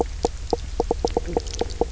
{"label": "biophony, knock croak", "recorder": "SoundTrap 300"}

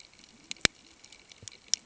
{"label": "ambient", "recorder": "HydroMoth"}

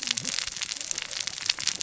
{"label": "biophony, cascading saw", "recorder": "SoundTrap 600 or HydroMoth"}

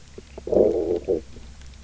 {"label": "biophony, low growl", "recorder": "SoundTrap 300"}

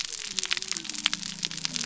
{"label": "biophony", "recorder": "SoundTrap 300"}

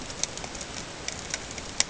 {"label": "ambient", "recorder": "HydroMoth"}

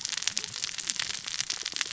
{"label": "biophony, cascading saw", "recorder": "SoundTrap 600 or HydroMoth"}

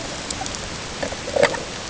{"label": "ambient", "recorder": "HydroMoth"}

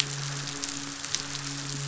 {"label": "biophony, midshipman", "recorder": "SoundTrap 500"}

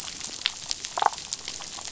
{"label": "biophony, damselfish", "recorder": "SoundTrap 500"}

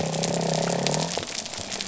{"label": "biophony", "recorder": "SoundTrap 300"}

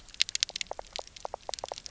{"label": "biophony", "recorder": "SoundTrap 300"}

